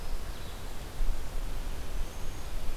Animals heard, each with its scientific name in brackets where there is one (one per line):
Cedar Waxwing (Bombycilla cedrorum)